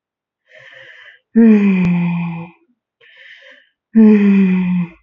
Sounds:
Sigh